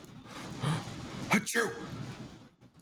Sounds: Sneeze